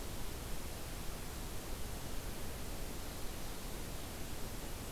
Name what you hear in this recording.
forest ambience